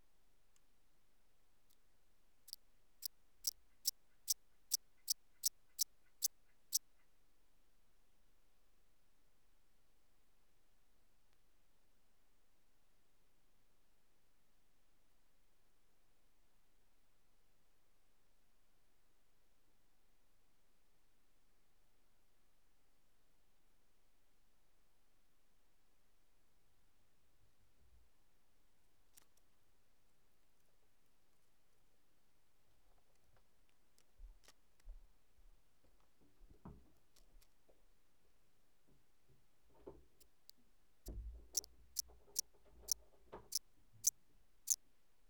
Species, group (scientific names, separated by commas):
Eupholidoptera smyrnensis, Orthoptera